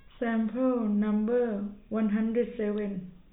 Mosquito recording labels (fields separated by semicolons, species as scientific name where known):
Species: no mosquito; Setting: cup